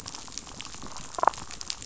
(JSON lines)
{"label": "biophony, damselfish", "recorder": "SoundTrap 500"}